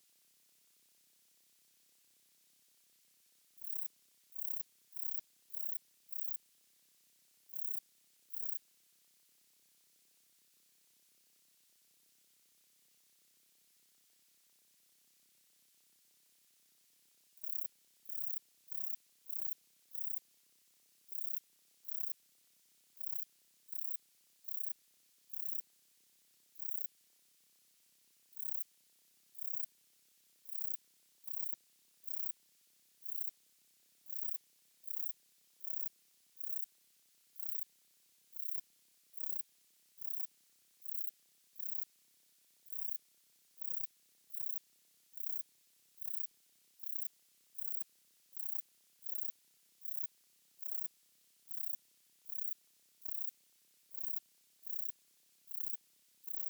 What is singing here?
Rhacocleis buchichii, an orthopteran